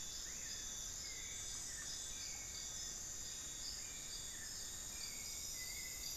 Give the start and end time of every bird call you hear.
0.7s-5.0s: Black-fronted Nunbird (Monasa nigrifrons)

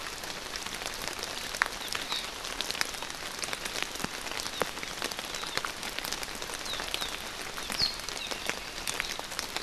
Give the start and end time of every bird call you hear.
7.7s-7.9s: Warbling White-eye (Zosterops japonicus)
8.3s-9.2s: Apapane (Himatione sanguinea)

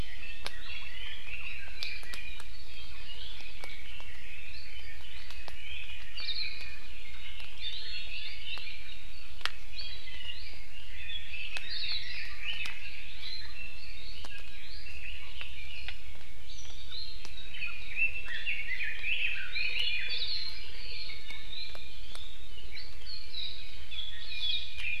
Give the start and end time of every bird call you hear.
0.0s-2.3s: Red-billed Leiothrix (Leiothrix lutea)
2.6s-8.9s: Red-billed Leiothrix (Leiothrix lutea)
6.2s-6.5s: Hawaii Akepa (Loxops coccineus)
9.7s-13.1s: Red-billed Leiothrix (Leiothrix lutea)
11.6s-12.0s: Hawaii Akepa (Loxops coccineus)
13.5s-16.0s: Red-billed Leiothrix (Leiothrix lutea)
17.5s-20.5s: Red-billed Leiothrix (Leiothrix lutea)
20.1s-20.8s: Hawaii Akepa (Loxops coccineus)
21.1s-22.1s: Iiwi (Drepanis coccinea)
24.2s-24.6s: Hawaii Akepa (Loxops coccineus)
24.3s-25.0s: Iiwi (Drepanis coccinea)

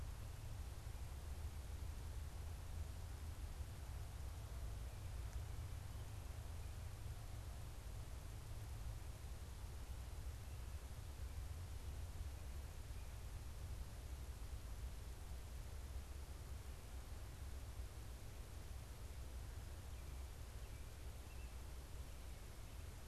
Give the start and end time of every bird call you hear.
19.5s-23.0s: American Robin (Turdus migratorius)

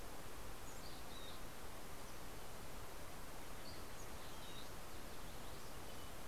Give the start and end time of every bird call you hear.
0.0s-1.9s: Mountain Chickadee (Poecile gambeli)
2.8s-4.3s: Dusky Flycatcher (Empidonax oberholseri)
4.0s-4.8s: Mountain Chickadee (Poecile gambeli)

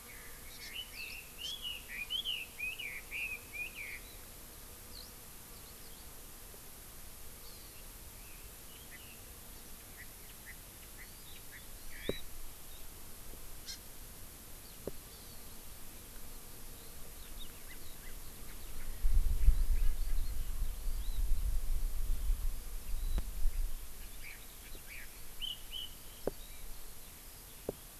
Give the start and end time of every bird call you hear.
0.0s-4.0s: Red-billed Leiothrix (Leiothrix lutea)
0.4s-0.7s: Hawaii Amakihi (Chlorodrepanis virens)
0.9s-1.2s: Eurasian Skylark (Alauda arvensis)
1.4s-1.5s: Hawaii Amakihi (Chlorodrepanis virens)
4.9s-5.1s: Eurasian Skylark (Alauda arvensis)
5.5s-6.0s: Eurasian Skylark (Alauda arvensis)
7.4s-7.8s: Hawaii Amakihi (Chlorodrepanis virens)
8.1s-9.2s: Red-billed Leiothrix (Leiothrix lutea)
9.9s-10.1s: Chinese Hwamei (Garrulax canorus)
10.4s-10.6s: Chinese Hwamei (Garrulax canorus)
10.9s-11.0s: Chinese Hwamei (Garrulax canorus)
11.0s-11.4s: Hawaii Amakihi (Chlorodrepanis virens)
11.5s-12.2s: Chinese Hwamei (Garrulax canorus)
11.7s-12.2s: Hawaii Amakihi (Chlorodrepanis virens)
13.6s-13.7s: Hawaii Amakihi (Chlorodrepanis virens)
15.1s-15.4s: Hawaii Amakihi (Chlorodrepanis virens)
17.6s-18.2s: Chinese Hwamei (Garrulax canorus)
20.7s-21.2s: Hawaii Amakihi (Chlorodrepanis virens)
24.1s-24.4s: Chinese Hwamei (Garrulax canorus)
24.8s-25.0s: Chinese Hwamei (Garrulax canorus)
25.3s-25.9s: Chinese Hwamei (Garrulax canorus)
26.0s-27.8s: Eurasian Skylark (Alauda arvensis)

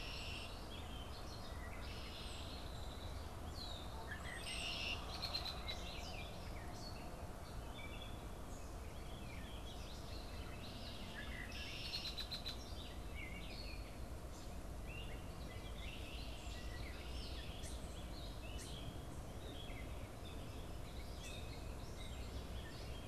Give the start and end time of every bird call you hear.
0.0s-6.4s: Red-winged Blackbird (Agelaius phoeniceus)
0.0s-22.4s: Gray Catbird (Dumetella carolinensis)
8.9s-11.3s: Warbling Vireo (Vireo gilvus)
10.7s-12.9s: Red-winged Blackbird (Agelaius phoeniceus)
14.9s-17.6s: Warbling Vireo (Vireo gilvus)

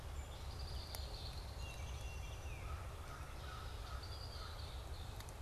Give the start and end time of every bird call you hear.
0.3s-1.8s: Red-winged Blackbird (Agelaius phoeniceus)
1.3s-3.3s: Downy Woodpecker (Dryobates pubescens)
2.5s-4.8s: American Crow (Corvus brachyrhynchos)
3.5s-5.4s: Red-winged Blackbird (Agelaius phoeniceus)

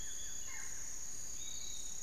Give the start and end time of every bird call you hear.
0.0s-1.0s: Buff-throated Woodcreeper (Xiphorhynchus guttatus)
0.0s-2.0s: Barred Forest-Falcon (Micrastur ruficollis)
0.0s-2.0s: Piratic Flycatcher (Legatus leucophaius)

